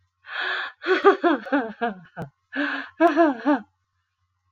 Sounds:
Laughter